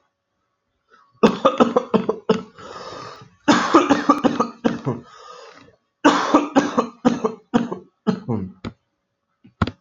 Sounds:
Cough